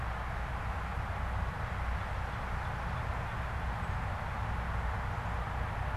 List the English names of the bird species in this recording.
Northern Cardinal